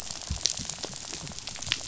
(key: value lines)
label: biophony, rattle
recorder: SoundTrap 500